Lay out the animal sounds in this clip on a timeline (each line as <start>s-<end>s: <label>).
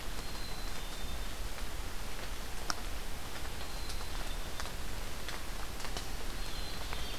0.0s-1.4s: Black-capped Chickadee (Poecile atricapillus)
3.5s-4.5s: Black-capped Chickadee (Poecile atricapillus)
6.2s-7.2s: Black-capped Chickadee (Poecile atricapillus)